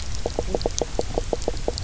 {"label": "biophony, knock croak", "recorder": "SoundTrap 300"}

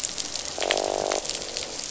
{"label": "biophony, croak", "recorder": "SoundTrap 500"}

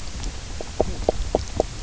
{"label": "biophony, knock croak", "recorder": "SoundTrap 300"}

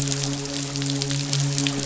{"label": "biophony, midshipman", "recorder": "SoundTrap 500"}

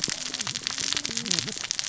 {"label": "biophony, cascading saw", "recorder": "SoundTrap 600 or HydroMoth"}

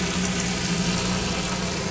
{"label": "anthrophony, boat engine", "recorder": "SoundTrap 500"}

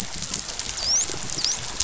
{"label": "biophony, dolphin", "recorder": "SoundTrap 500"}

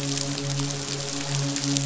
{"label": "biophony, midshipman", "recorder": "SoundTrap 500"}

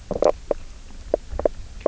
{"label": "biophony, knock croak", "recorder": "SoundTrap 300"}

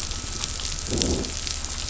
{"label": "biophony, growl", "recorder": "SoundTrap 500"}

